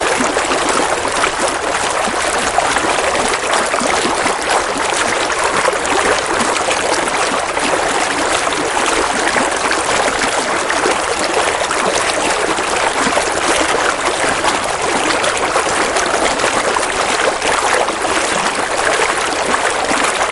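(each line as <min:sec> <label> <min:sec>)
0:00.0 A gentle stream flows steadily, creating a peaceful and relaxing natural ambiance. 0:20.3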